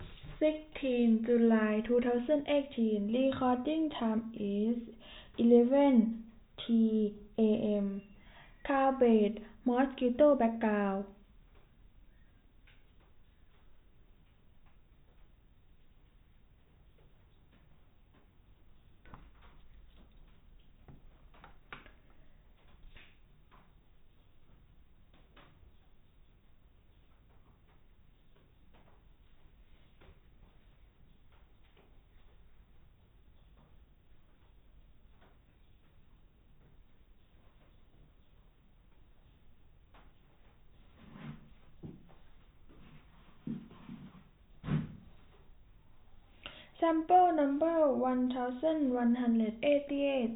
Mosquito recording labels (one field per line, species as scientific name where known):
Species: no mosquito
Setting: cup